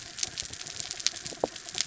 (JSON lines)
{"label": "anthrophony, mechanical", "recorder": "SoundTrap 300"}